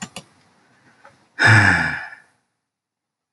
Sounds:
Sigh